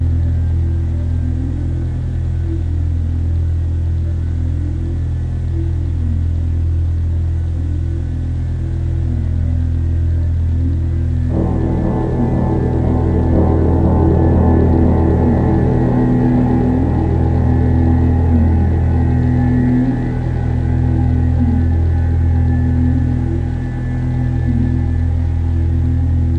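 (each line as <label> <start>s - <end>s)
A creepy electroacoustic hoover sound. 0.0s - 11.2s
Haunting electroacoustic background sounds. 11.0s - 26.4s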